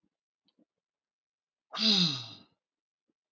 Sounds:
Sigh